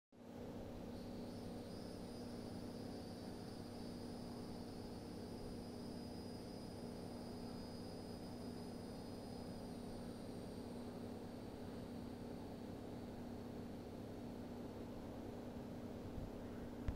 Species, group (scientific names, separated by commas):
Neocicada hieroglyphica, Cicadidae